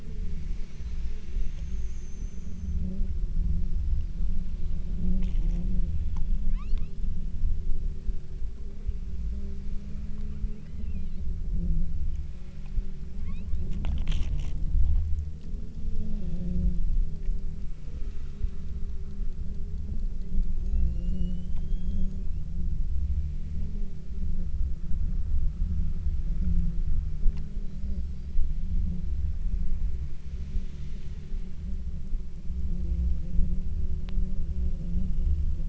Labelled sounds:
6.6	7.2	killer whale, southern Alaska resident, 0.78 to 8.0 kHz
10.7	11.4	killer whale, southern Alaska resident, 1.4 to 4.9 kHz
13.2	13.8	killer whale, southern Alaska resident, 0.73 to 5.3 kHz
20.2	22.4	killer whale, southern Alaska resident, 0.89 to 8.0 kHz

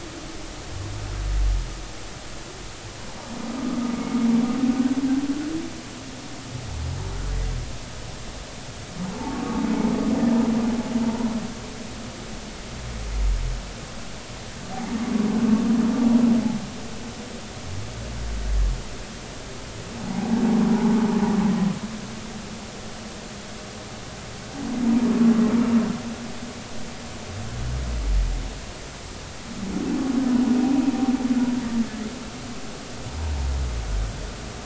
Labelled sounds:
4.7	5.0	humpback whale, 1.4 to 1.7 kHz
20.1	20.4	humpback whale, 0.80 to 0.99 kHz
24.8	25.1	humpback whale, 0.90 to 1.0 kHz

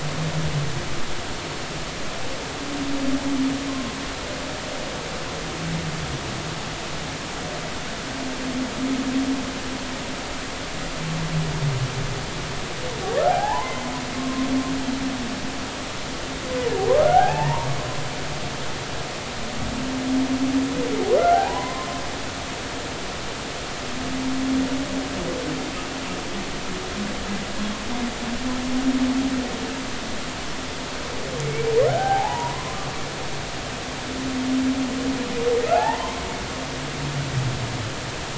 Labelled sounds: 3.7	3.9	humpback whale, 1.0 to 1.1 kHz
13.2	14.5	humpback whale, 0.80 to 2.1 kHz
16.9	17.7	humpback whale, 0.80 to 1.9 kHz
21.3	21.9	humpback whale, 0.80 to 1.1 kHz
31.9	32.6	humpback whale, 0.80 to 1.6 kHz
35.7	36.2	humpback whale, 0.80 to 2.1 kHz

